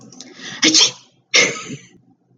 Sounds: Sneeze